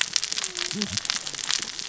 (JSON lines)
{"label": "biophony, cascading saw", "recorder": "SoundTrap 600 or HydroMoth"}